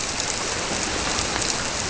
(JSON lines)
{"label": "biophony", "recorder": "SoundTrap 300"}